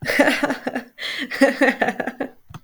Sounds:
Laughter